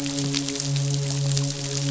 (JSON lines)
{"label": "biophony, midshipman", "recorder": "SoundTrap 500"}